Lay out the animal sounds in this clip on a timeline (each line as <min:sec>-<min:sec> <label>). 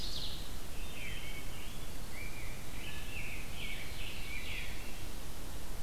0:00.0-0:00.3 Ovenbird (Seiurus aurocapilla)
0:00.8-0:01.3 Veery (Catharus fuscescens)
0:01.8-0:05.2 Rose-breasted Grosbeak (Pheucticus ludovicianus)